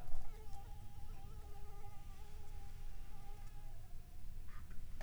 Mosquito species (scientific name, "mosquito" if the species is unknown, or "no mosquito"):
Anopheles arabiensis